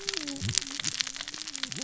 {"label": "biophony, cascading saw", "recorder": "SoundTrap 600 or HydroMoth"}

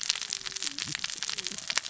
{"label": "biophony, cascading saw", "recorder": "SoundTrap 600 or HydroMoth"}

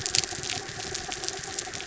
{"label": "anthrophony, mechanical", "recorder": "SoundTrap 300"}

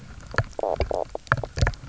{"label": "biophony, knock croak", "recorder": "SoundTrap 300"}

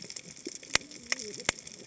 {"label": "biophony, cascading saw", "recorder": "HydroMoth"}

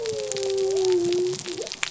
{"label": "biophony", "recorder": "SoundTrap 300"}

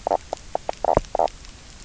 {"label": "biophony, knock croak", "recorder": "SoundTrap 300"}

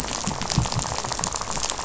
{"label": "biophony, rattle", "recorder": "SoundTrap 500"}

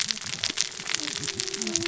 {"label": "biophony, cascading saw", "recorder": "SoundTrap 600 or HydroMoth"}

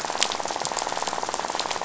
{"label": "biophony, rattle", "recorder": "SoundTrap 500"}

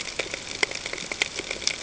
{"label": "ambient", "recorder": "HydroMoth"}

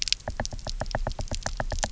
{"label": "biophony, knock", "recorder": "SoundTrap 300"}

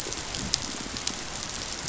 {"label": "biophony", "recorder": "SoundTrap 500"}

